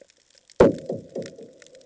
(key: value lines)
label: anthrophony, bomb
recorder: HydroMoth